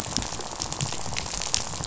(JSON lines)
{"label": "biophony, rattle", "recorder": "SoundTrap 500"}